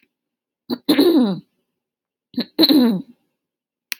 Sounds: Throat clearing